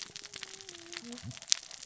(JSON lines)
{"label": "biophony, cascading saw", "recorder": "SoundTrap 600 or HydroMoth"}